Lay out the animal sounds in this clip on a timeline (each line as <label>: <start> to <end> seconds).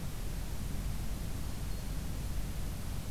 Black-throated Green Warbler (Setophaga virens): 1.3 to 2.0 seconds